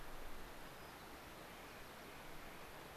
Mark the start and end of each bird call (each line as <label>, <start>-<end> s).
White-crowned Sparrow (Zonotrichia leucophrys), 0.5-2.1 s
Clark's Nutcracker (Nucifraga columbiana), 1.5-2.8 s